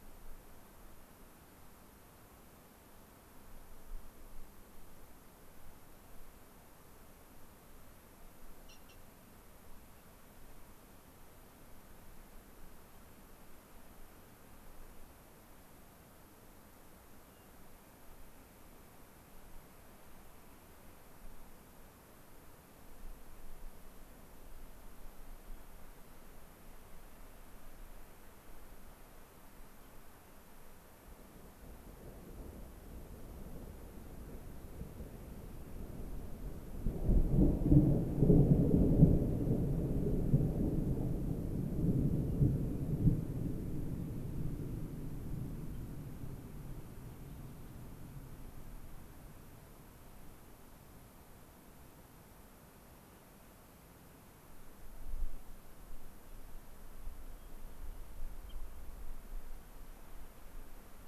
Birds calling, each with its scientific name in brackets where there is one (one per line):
Hermit Thrush (Catharus guttatus)